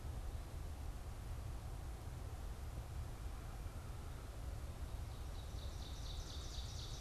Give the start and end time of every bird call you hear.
[3.23, 7.01] American Crow (Corvus brachyrhynchos)
[4.83, 7.01] Ovenbird (Seiurus aurocapilla)

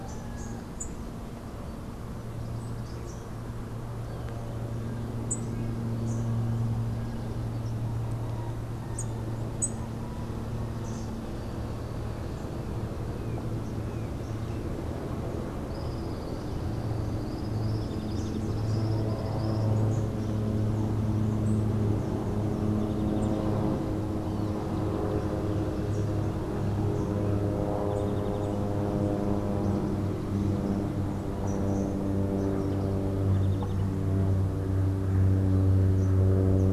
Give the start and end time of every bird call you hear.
[0.00, 10.10] Rufous-capped Warbler (Basileuterus rufifrons)
[15.70, 19.80] Tropical Kingbird (Tyrannus melancholicus)

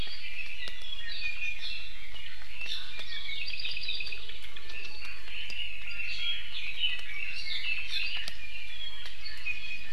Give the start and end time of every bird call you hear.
[0.20, 1.60] Iiwi (Drepanis coccinea)
[2.90, 4.20] Apapane (Himatione sanguinea)
[5.20, 8.30] Red-billed Leiothrix (Leiothrix lutea)
[5.80, 6.50] Iiwi (Drepanis coccinea)
[9.40, 9.90] Iiwi (Drepanis coccinea)

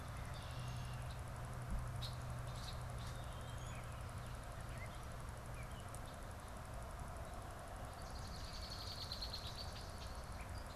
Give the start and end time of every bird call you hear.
[0.00, 1.20] Red-winged Blackbird (Agelaius phoeniceus)
[1.80, 3.30] Red-winged Blackbird (Agelaius phoeniceus)
[3.60, 6.20] Gray Catbird (Dumetella carolinensis)
[7.70, 10.70] Swamp Sparrow (Melospiza georgiana)
[8.20, 10.40] Red-winged Blackbird (Agelaius phoeniceus)

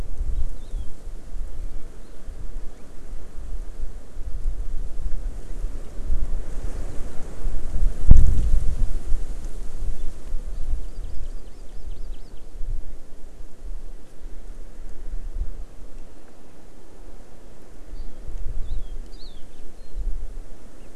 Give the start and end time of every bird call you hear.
[0.59, 0.89] Hawaii Amakihi (Chlorodrepanis virens)
[10.79, 12.29] Hawaii Amakihi (Chlorodrepanis virens)
[18.59, 19.39] Hawaii Amakihi (Chlorodrepanis virens)
[19.79, 19.99] Warbling White-eye (Zosterops japonicus)

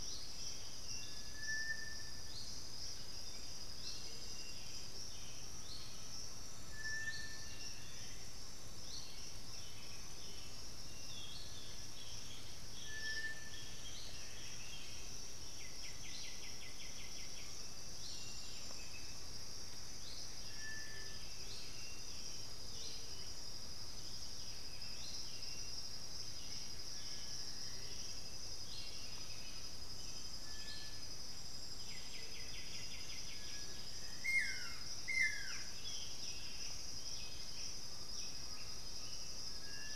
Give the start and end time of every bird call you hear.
[0.00, 0.95] Black-billed Thrush (Turdus ignobilis)
[0.00, 39.95] Striped Cuckoo (Tapera naevia)
[2.65, 6.15] Thrush-like Wren (Campylorhynchus turdinus)
[9.45, 15.05] Boat-billed Flycatcher (Megarynchus pitangua)
[13.85, 15.25] Buff-throated Saltator (Saltator maximus)
[15.35, 17.65] White-winged Becard (Pachyramphus polychopterus)
[17.35, 19.25] unidentified bird
[21.05, 30.05] Black-billed Thrush (Turdus ignobilis)
[21.55, 25.75] Thrush-like Wren (Campylorhynchus turdinus)
[29.05, 29.75] unidentified bird
[29.25, 31.35] Undulated Tinamou (Crypturellus undulatus)
[31.85, 33.75] White-winged Becard (Pachyramphus polychopterus)
[34.05, 35.85] Buff-throated Woodcreeper (Xiphorhynchus guttatus)
[35.65, 38.65] Buff-breasted Wren (Cantorchilus leucotis)
[35.75, 39.95] Boat-billed Flycatcher (Megarynchus pitangua)
[38.05, 39.95] Undulated Tinamou (Crypturellus undulatus)

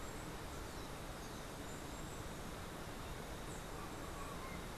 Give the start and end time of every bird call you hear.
[0.00, 4.55] Steely-vented Hummingbird (Saucerottia saucerottei)

